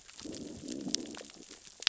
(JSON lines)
{"label": "biophony, growl", "recorder": "SoundTrap 600 or HydroMoth"}